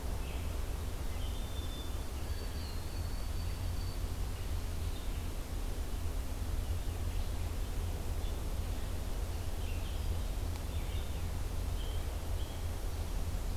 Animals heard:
Red-eyed Vireo (Vireo olivaceus)
White-throated Sparrow (Zonotrichia albicollis)

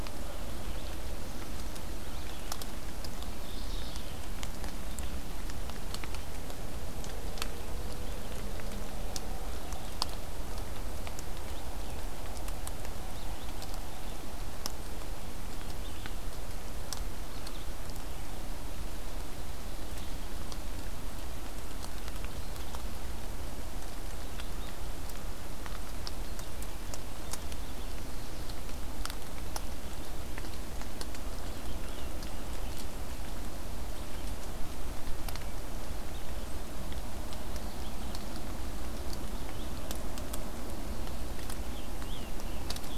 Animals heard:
Mourning Warbler (Geothlypis philadelphia)
Rose-breasted Grosbeak (Pheucticus ludovicianus)
Red-eyed Vireo (Vireo olivaceus)

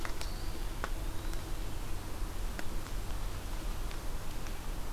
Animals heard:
Eastern Wood-Pewee (Contopus virens)

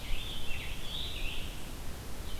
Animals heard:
Scarlet Tanager (Piranga olivacea)

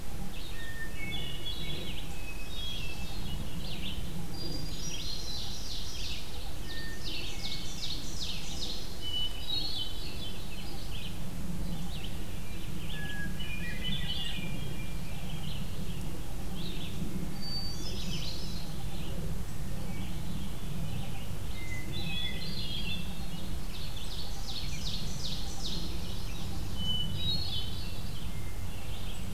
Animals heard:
Red-eyed Vireo (Vireo olivaceus)
Hermit Thrush (Catharus guttatus)
Ovenbird (Seiurus aurocapilla)

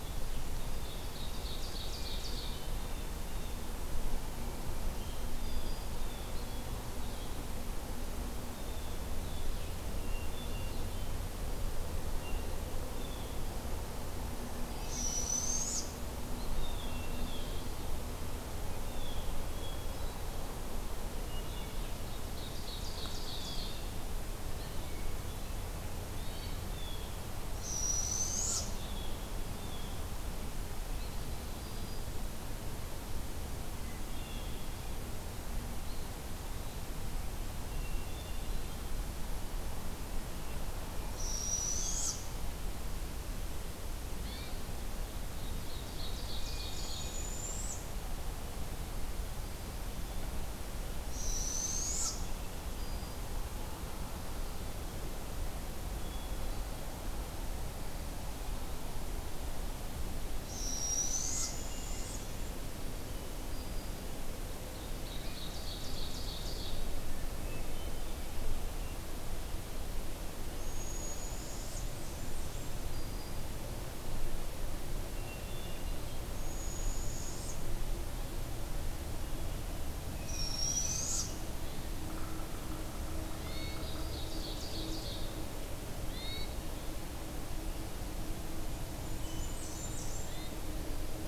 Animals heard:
Blue Jay (Cyanocitta cristata)
Hermit Thrush (Catharus guttatus)
Ovenbird (Seiurus aurocapilla)
Black-throated Green Warbler (Setophaga virens)
unidentified call
Barred Owl (Strix varia)
Blackburnian Warbler (Setophaga fusca)

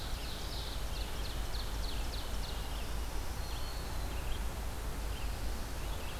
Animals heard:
Ovenbird (Seiurus aurocapilla)
Red-eyed Vireo (Vireo olivaceus)
Black-throated Green Warbler (Setophaga virens)

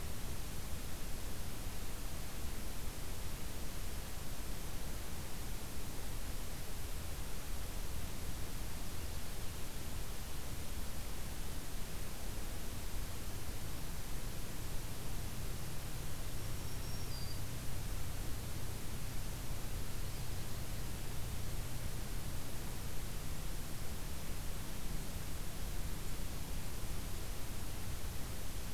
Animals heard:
Black-throated Green Warbler (Setophaga virens)

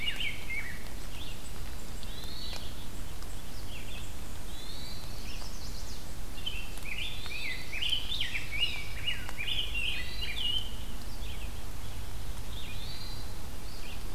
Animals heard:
Common Yellowthroat (Geothlypis trichas)
Chestnut-sided Warbler (Setophaga pensylvanica)
Red-eyed Vireo (Vireo olivaceus)
Hermit Thrush (Catharus guttatus)
Rose-breasted Grosbeak (Pheucticus ludovicianus)

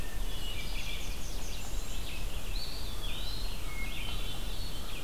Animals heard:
Hermit Thrush (Catharus guttatus)
Red-eyed Vireo (Vireo olivaceus)
Eastern Wood-Pewee (Contopus virens)
Blackburnian Warbler (Setophaga fusca)

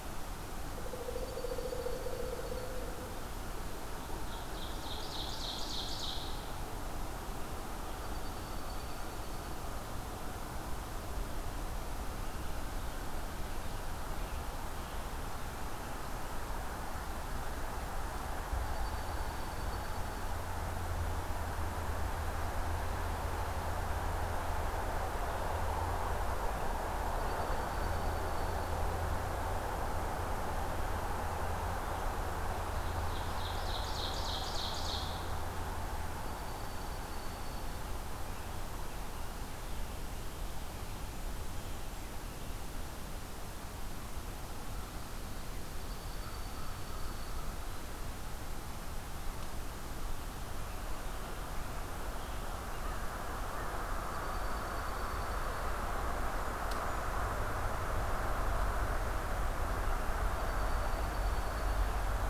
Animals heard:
Pileated Woodpecker (Dryocopus pileatus)
Ovenbird (Seiurus aurocapilla)
Blackburnian Warbler (Setophaga fusca)
Dark-eyed Junco (Junco hyemalis)

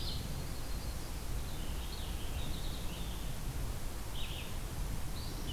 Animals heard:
Red-eyed Vireo (Vireo olivaceus)
Yellow-rumped Warbler (Setophaga coronata)
Purple Finch (Haemorhous purpureus)

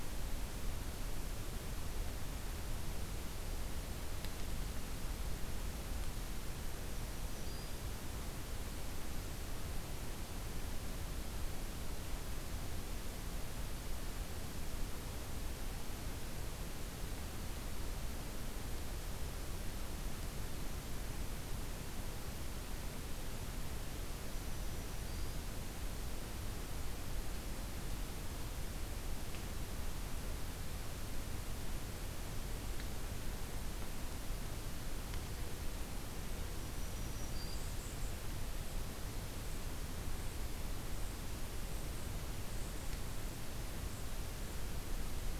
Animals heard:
Black-throated Green Warbler (Setophaga virens)

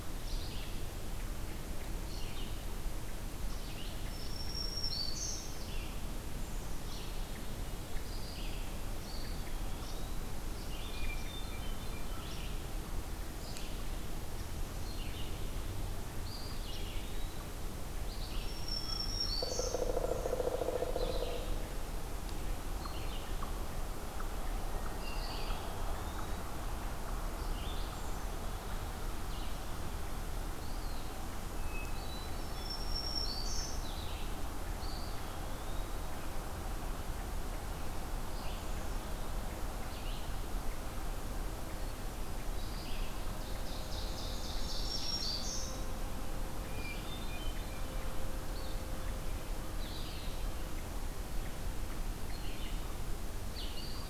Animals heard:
Pileated Woodpecker (Dryocopus pileatus)
Red-eyed Vireo (Vireo olivaceus)
Black-throated Green Warbler (Setophaga virens)
Eastern Wood-Pewee (Contopus virens)
Hermit Thrush (Catharus guttatus)
Ovenbird (Seiurus aurocapilla)

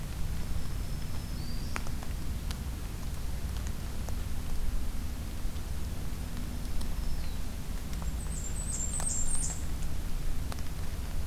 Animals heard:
Black-throated Green Warbler (Setophaga virens)
Blackburnian Warbler (Setophaga fusca)

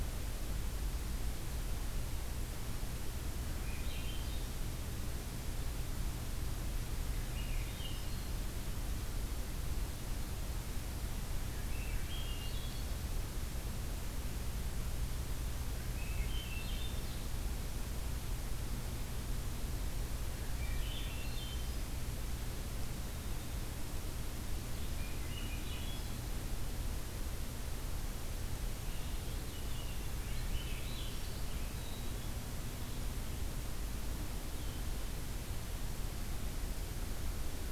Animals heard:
Swainson's Thrush (Catharus ustulatus)
unidentified call

